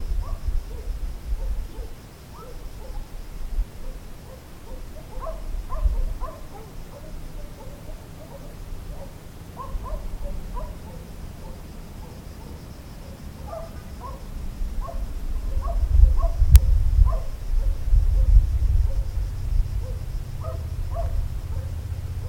Do the dogs stop barking for longer than a couple of seconds?
no